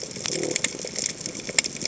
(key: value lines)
label: biophony
recorder: HydroMoth